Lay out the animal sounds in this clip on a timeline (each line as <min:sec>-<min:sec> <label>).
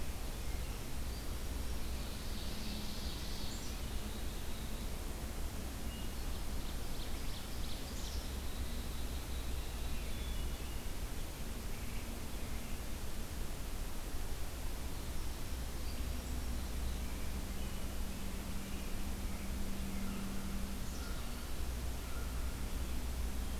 0:01.7-0:03.7 Ovenbird (Seiurus aurocapilla)
0:03.4-0:05.0 Black-capped Chickadee (Poecile atricapillus)
0:05.8-0:06.6 Hermit Thrush (Catharus guttatus)
0:06.0-0:08.1 Ovenbird (Seiurus aurocapilla)
0:07.9-0:10.0 Black-capped Chickadee (Poecile atricapillus)
0:10.1-0:10.9 Hermit Thrush (Catharus guttatus)
0:15.7-0:16.9 Hermit Thrush (Catharus guttatus)
0:18.0-0:20.5 American Robin (Turdus migratorius)
0:19.9-0:22.7 American Crow (Corvus brachyrhynchos)
0:20.8-0:21.9 Black-capped Chickadee (Poecile atricapillus)